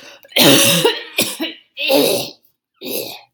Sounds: Throat clearing